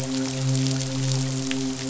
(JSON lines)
{"label": "biophony, midshipman", "recorder": "SoundTrap 500"}